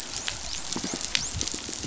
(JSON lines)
{"label": "biophony, dolphin", "recorder": "SoundTrap 500"}